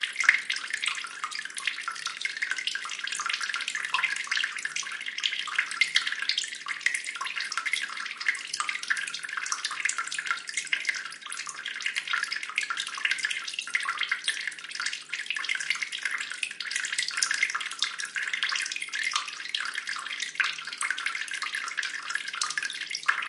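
A leaky faucet drips water continuously, with each drop sounding like a gentle tap. 0.0 - 23.3

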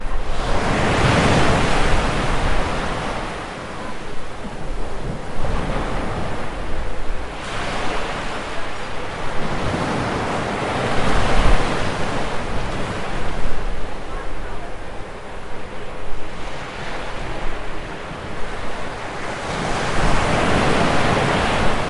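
Gusts of wind blowing with continuously varying volume. 0.0 - 21.9
Waves crashing repeatedly with changing volume. 0.0 - 21.9
People talking loudly with varying volume. 13.8 - 15.5

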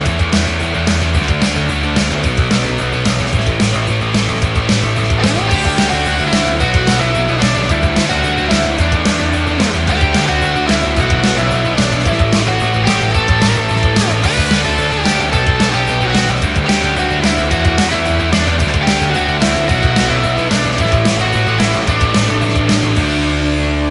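An electric bass guitar plays a deep metallic melody. 0.0 - 23.9
Drums play a rumbling rhythmic beat for a song. 0.0 - 23.9
An electric guitar plays a metallic-sounding melody. 5.2 - 23.9

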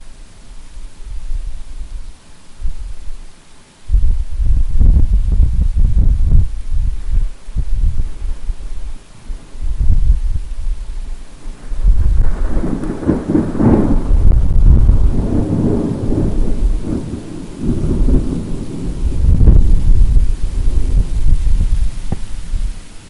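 Rain is falling quietly. 0.1 - 23.0
Wind blowing. 3.9 - 11.1
Thunder roars in the distance. 11.6 - 22.2

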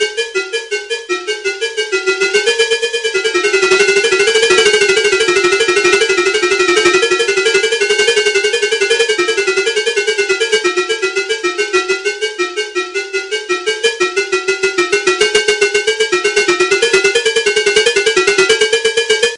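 Variable-frequency electronic beeping with fluctuating intensity, consisting of short and long pulses irregularly spaced. 0.0 - 19.4

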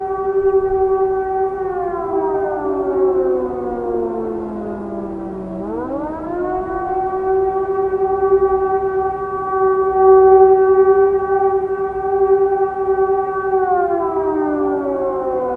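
Birds singing softly. 0.0 - 3.7
An alarm siren sounds loudly. 0.0 - 15.6

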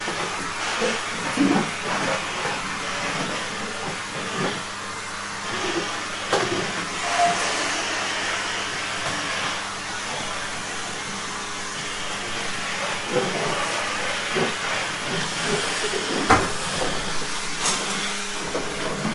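A vacuum cleaner is running. 0.0 - 19.1
Static noise in the background. 0.0 - 19.1
A thumping noise. 16.3 - 16.6

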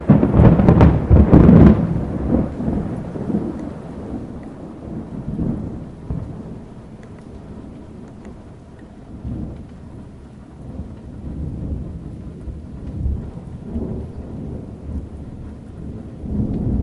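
Crackling sound of lightning. 0.0 - 1.9
Soft thunder sounds occur intermittently in the distance. 1.9 - 16.8

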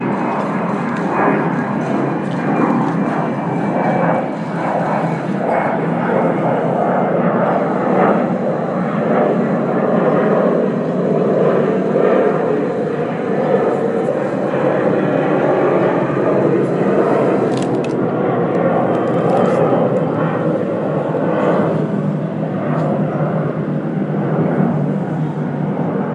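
An airplane is flying at a distance. 0.0 - 26.1

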